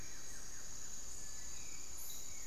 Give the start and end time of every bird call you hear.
0.0s-1.3s: Buff-throated Woodcreeper (Xiphorhynchus guttatus)
0.0s-2.5s: Hauxwell's Thrush (Turdus hauxwelli)
1.7s-2.5s: Thrush-like Wren (Campylorhynchus turdinus)

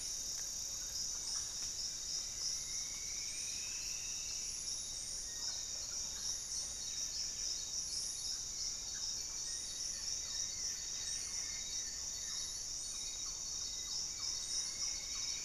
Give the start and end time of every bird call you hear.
0.0s-9.7s: Mealy Parrot (Amazona farinosa)
0.0s-15.4s: Buff-breasted Wren (Cantorchilus leucotis)
0.0s-15.4s: Paradise Tanager (Tangara chilensis)
2.0s-4.9s: Striped Woodcreeper (Xiphorhynchus obsoletus)
5.2s-7.6s: Black-faced Antthrush (Formicarius analis)
8.3s-15.4s: Hauxwell's Thrush (Turdus hauxwelli)
9.4s-12.5s: Goeldi's Antbird (Akletos goeldii)
10.3s-11.8s: Bluish-fronted Jacamar (Galbula cyanescens)
12.1s-15.4s: Thrush-like Wren (Campylorhynchus turdinus)
13.7s-15.4s: Striped Woodcreeper (Xiphorhynchus obsoletus)

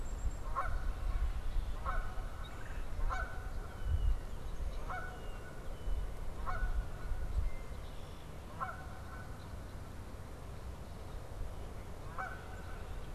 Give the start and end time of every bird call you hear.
0.0s-0.5s: Black-capped Chickadee (Poecile atricapillus)
0.0s-13.1s: Canada Goose (Branta canadensis)
3.6s-6.1s: Red-winged Blackbird (Agelaius phoeniceus)
7.2s-8.3s: Red-winged Blackbird (Agelaius phoeniceus)

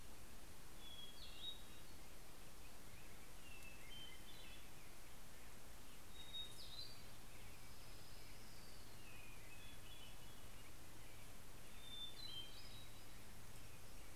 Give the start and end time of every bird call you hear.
0.0s-0.5s: Hermit Warbler (Setophaga occidentalis)
0.3s-2.6s: Hermit Thrush (Catharus guttatus)
3.3s-5.1s: Hermit Thrush (Catharus guttatus)
5.8s-7.4s: Hermit Thrush (Catharus guttatus)
7.1s-9.2s: Orange-crowned Warbler (Leiothlypis celata)
8.8s-11.3s: Hermit Thrush (Catharus guttatus)
11.0s-14.2s: Black-headed Grosbeak (Pheucticus melanocephalus)
11.6s-13.3s: Hermit Thrush (Catharus guttatus)

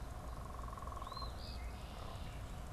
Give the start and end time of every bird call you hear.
0.9s-1.6s: Eastern Phoebe (Sayornis phoebe)
1.4s-2.6s: Red-winged Blackbird (Agelaius phoeniceus)

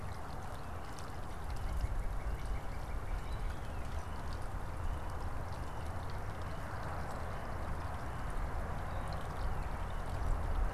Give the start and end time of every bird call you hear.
0.7s-4.0s: Northern Cardinal (Cardinalis cardinalis)

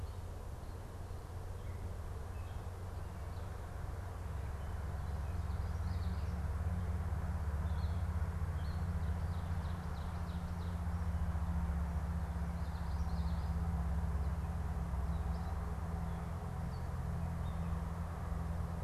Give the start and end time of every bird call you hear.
7.5s-9.0s: Gray Catbird (Dumetella carolinensis)
9.1s-10.8s: Ovenbird (Seiurus aurocapilla)
12.4s-13.8s: Common Yellowthroat (Geothlypis trichas)

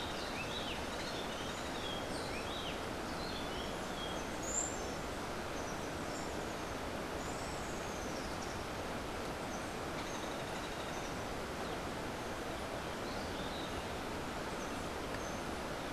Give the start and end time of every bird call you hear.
0.0s-4.3s: Rufous-breasted Wren (Pheugopedius rutilus)
4.3s-4.8s: Clay-colored Thrush (Turdus grayi)

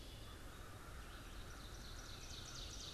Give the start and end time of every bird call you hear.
0.0s-2.9s: American Crow (Corvus brachyrhynchos)
0.0s-2.9s: Ovenbird (Seiurus aurocapilla)
0.0s-2.9s: Red-eyed Vireo (Vireo olivaceus)

